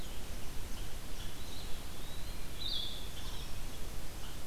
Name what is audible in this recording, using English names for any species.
unknown mammal, Red-eyed Vireo, Eastern Wood-Pewee, Blue-headed Vireo